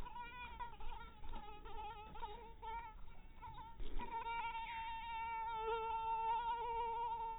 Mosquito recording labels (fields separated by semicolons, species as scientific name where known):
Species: mosquito; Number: one; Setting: cup